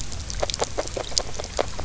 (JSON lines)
{"label": "biophony, grazing", "recorder": "SoundTrap 300"}